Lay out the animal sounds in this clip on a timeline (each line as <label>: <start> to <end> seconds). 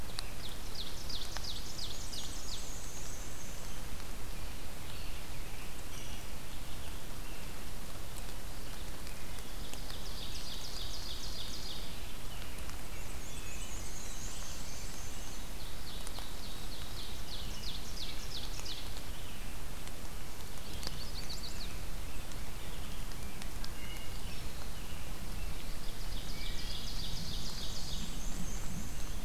Ovenbird (Seiurus aurocapilla): 0.0 to 2.9 seconds
Black-and-white Warbler (Mniotilta varia): 1.7 to 4.0 seconds
American Robin (Turdus migratorius): 4.8 to 7.6 seconds
Ovenbird (Seiurus aurocapilla): 9.6 to 12.0 seconds
Black-and-white Warbler (Mniotilta varia): 12.8 to 15.5 seconds
Black-throated Blue Warbler (Setophaga caerulescens): 13.6 to 15.1 seconds
Ovenbird (Seiurus aurocapilla): 15.2 to 18.9 seconds
Chestnut-sided Warbler (Setophaga pensylvanica): 20.5 to 22.0 seconds
Rose-breasted Grosbeak (Pheucticus ludovicianus): 21.0 to 23.6 seconds
Wood Thrush (Hylocichla mustelina): 23.4 to 24.3 seconds
Ovenbird (Seiurus aurocapilla): 25.5 to 28.2 seconds
Wood Thrush (Hylocichla mustelina): 26.1 to 27.1 seconds
Black-and-white Warbler (Mniotilta varia): 27.1 to 29.2 seconds